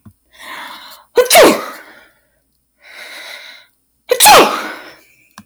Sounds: Sneeze